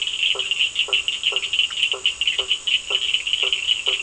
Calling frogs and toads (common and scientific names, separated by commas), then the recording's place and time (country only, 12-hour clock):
blacksmith tree frog (Boana faber), Cochran's lime tree frog (Sphaenorhynchus surdus)
Brazil, 8:15pm